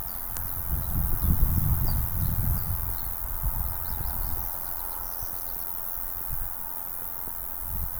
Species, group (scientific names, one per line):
Ruspolia nitidula
Orthoptera